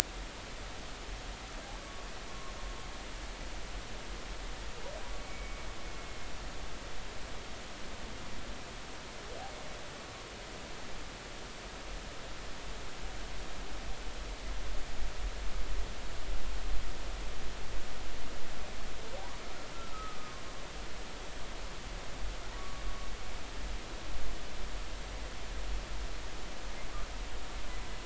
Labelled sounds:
1.8	2.5	humpback whale, 1.0 to 1.2 kHz
5.2	6.2	humpback whale, 2.1 to 2.4 kHz
19.9	20.2	humpback whale, 1.2 to 1.3 kHz
22.6	22.8	humpback whale, 1.1 to 1.2 kHz

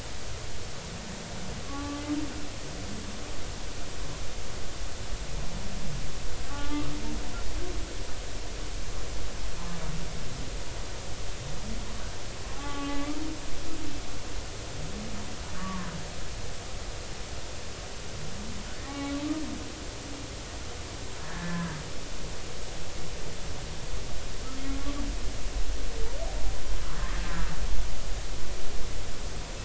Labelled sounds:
1.7	2.0	humpback whale, 1.1 to 1.2 kHz
6.5	6.9	humpback whale, 0.80 to 1.5 kHz
12.5	13.1	humpback whale, 0.80 to 1.7 kHz
15.6	15.9	humpback whale, 0.99 to 1.2 kHz
18.9	19.2	humpback whale, 0.80 to 2.3 kHz
21.2	21.8	humpback whale, 1.5 to 1.9 kHz

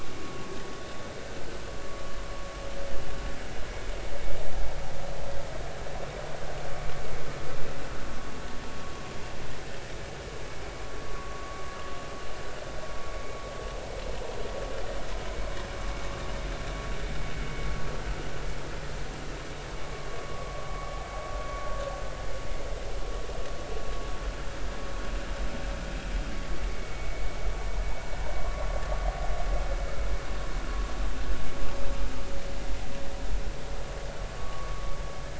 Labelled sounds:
11.1	11.6	vessel noise, 0.96 to 1.2 kHz
20.2	20.6	vessel noise, 1.0 to 1.2 kHz
26.7	27.4	vessel noise, 2.2 to 2.3 kHz
34.4	34.9	vessel noise, 1.1 to 1.3 kHz

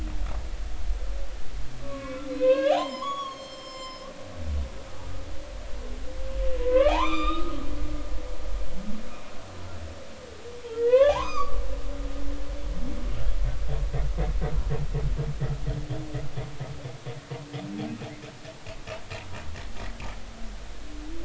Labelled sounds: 1.8	4.1	humpback whale, 0.80 to 7.5 kHz
4.9	5.2	humpback whale, 1.2 to 1.3 kHz
6.6	7.6	humpback whale, 0.80 to 6.1 kHz
10.7	11.6	humpback whale, 0.80 to 5.0 kHz
12.2	12.5	humpback whale, 5.9 to 6.3 kHz

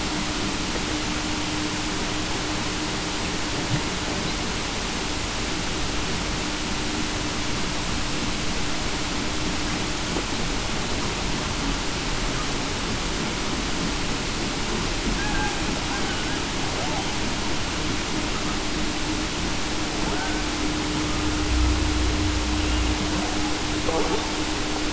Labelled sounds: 15.2	15.5	killer whale, Bigg's (transient), 1.5 to 1.7 kHz

